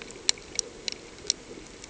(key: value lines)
label: anthrophony, boat engine
recorder: HydroMoth